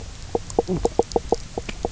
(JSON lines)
{"label": "biophony, knock croak", "recorder": "SoundTrap 300"}